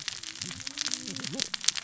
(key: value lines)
label: biophony, cascading saw
recorder: SoundTrap 600 or HydroMoth